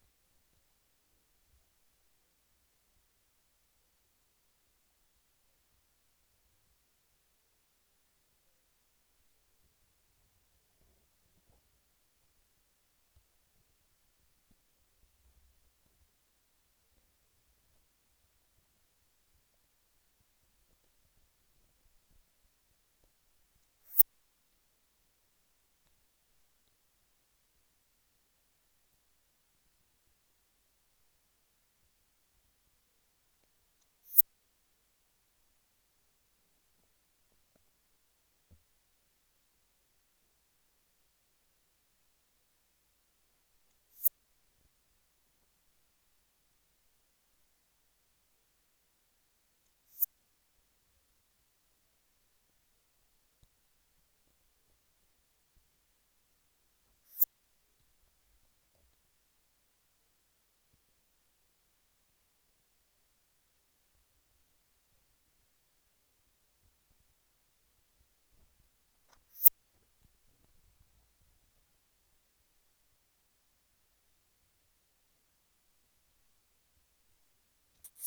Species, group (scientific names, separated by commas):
Poecilimon affinis, Orthoptera